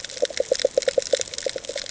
{"label": "ambient", "recorder": "HydroMoth"}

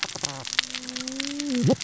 {"label": "biophony, cascading saw", "recorder": "SoundTrap 600 or HydroMoth"}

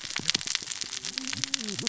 {"label": "biophony, cascading saw", "recorder": "SoundTrap 600 or HydroMoth"}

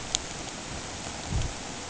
{"label": "ambient", "recorder": "HydroMoth"}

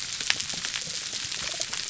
{"label": "biophony, damselfish", "recorder": "SoundTrap 300"}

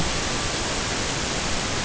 {"label": "ambient", "recorder": "HydroMoth"}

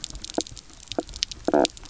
{"label": "biophony, knock croak", "recorder": "SoundTrap 300"}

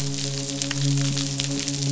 {"label": "biophony, midshipman", "recorder": "SoundTrap 500"}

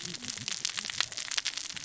{"label": "biophony, cascading saw", "recorder": "SoundTrap 600 or HydroMoth"}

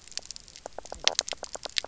{"label": "biophony, knock croak", "recorder": "SoundTrap 300"}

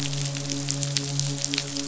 {"label": "biophony, midshipman", "recorder": "SoundTrap 500"}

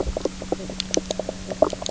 {"label": "biophony, knock croak", "recorder": "SoundTrap 300"}
{"label": "anthrophony, boat engine", "recorder": "SoundTrap 300"}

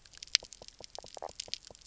{"label": "biophony, knock croak", "recorder": "SoundTrap 300"}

